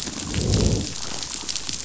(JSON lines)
{"label": "biophony, growl", "recorder": "SoundTrap 500"}